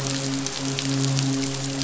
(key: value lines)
label: biophony, midshipman
recorder: SoundTrap 500